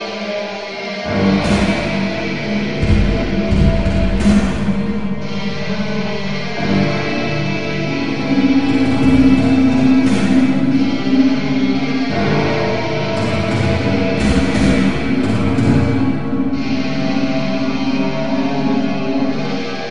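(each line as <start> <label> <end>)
0.0 An electric guitar plays loudly with a creepy tone. 19.9
1.6 Drums play rhythmically in the background. 5.4
9.8 Drums play rhythmically in the background. 11.5
13.3 Drums play rhythmically in the background. 16.4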